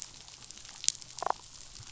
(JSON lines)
{"label": "biophony, damselfish", "recorder": "SoundTrap 500"}